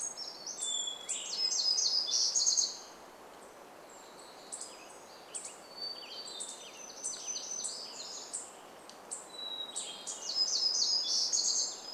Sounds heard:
Brown Creeper song, Hermit Thrush song, warbler song, unidentified bird chip note, Western Tanager song

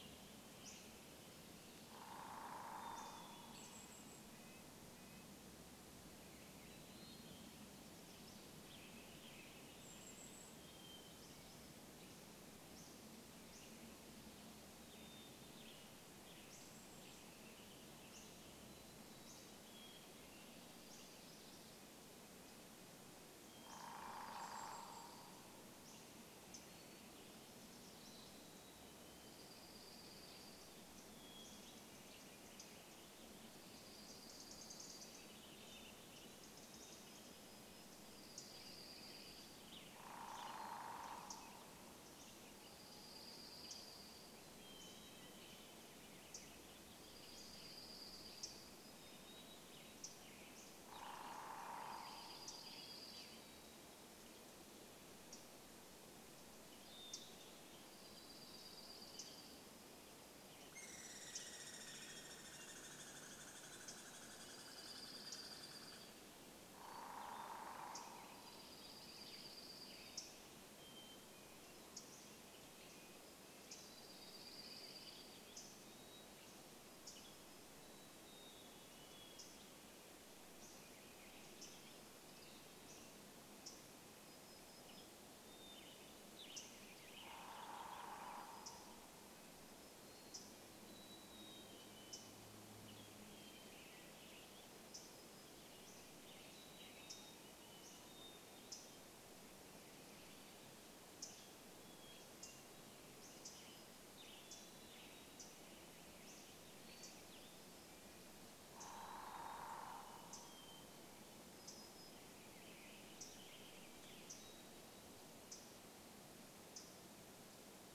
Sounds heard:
unidentified bird chip note, Brown Creeper call, Hermit Thrush song, Western Tanager song, Warbling Vireo song, Red-breasted Nuthatch song, Dark-eyed Junco call, Mountain Chickadee song, Western Tanager call, woodpecker drumming, unidentified sound, warbler song, Douglas squirrel rattle, Hammond's Flycatcher song, Dark-eyed Junco song

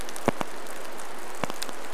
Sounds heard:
rain

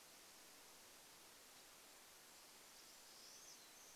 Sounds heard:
Pine Siskin song, Golden-crowned Kinglet song, Pine Siskin call

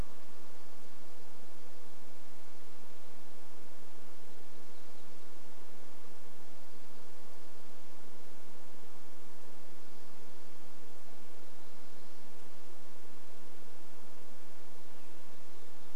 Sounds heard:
warbler song

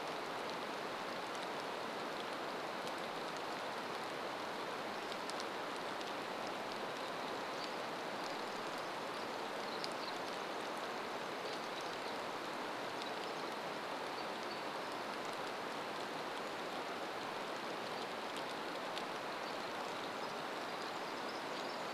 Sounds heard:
American Robin call, Brown Creeper call, rain, Pacific Wren song

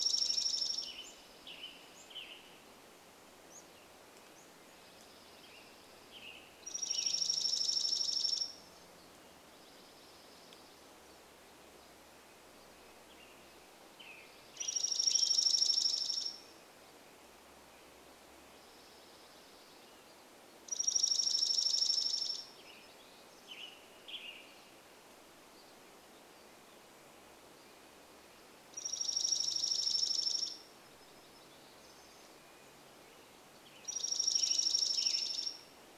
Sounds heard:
Red-breasted Nuthatch song, Dark-eyed Junco song, warbler song, Western Tanager song, unidentified bird chip note

